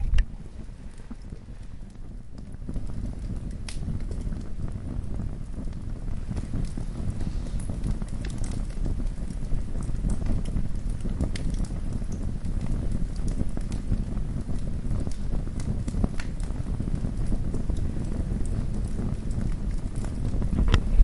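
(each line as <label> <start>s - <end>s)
A fire crackles continuously outdoors. 0.0s - 21.0s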